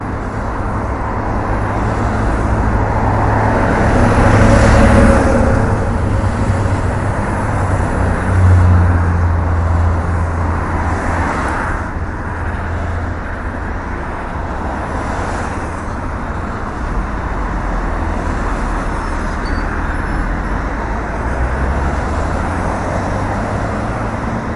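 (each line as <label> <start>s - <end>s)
Cars pass by intermittently on a crowded road or highway outdoors. 0.0s - 24.6s
A high-pitched, intermittent beep sounds close by at a low volume. 18.4s - 21.0s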